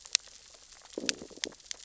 {"label": "biophony, growl", "recorder": "SoundTrap 600 or HydroMoth"}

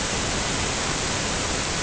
{"label": "ambient", "recorder": "HydroMoth"}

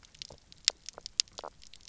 {"label": "biophony, knock croak", "recorder": "SoundTrap 300"}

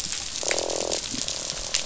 {"label": "biophony, croak", "recorder": "SoundTrap 500"}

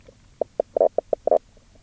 {"label": "biophony, knock croak", "recorder": "SoundTrap 300"}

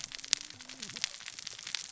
{"label": "biophony, cascading saw", "recorder": "SoundTrap 600 or HydroMoth"}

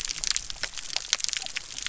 {"label": "biophony", "recorder": "SoundTrap 300"}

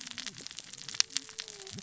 {"label": "biophony, cascading saw", "recorder": "SoundTrap 600 or HydroMoth"}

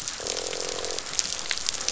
{"label": "biophony, croak", "recorder": "SoundTrap 500"}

